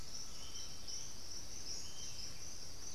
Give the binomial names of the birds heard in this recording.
Crypturellus undulatus, Galbula cyanescens, Legatus leucophaius